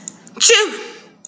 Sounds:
Sneeze